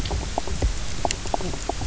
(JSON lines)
{"label": "biophony, knock croak", "recorder": "SoundTrap 300"}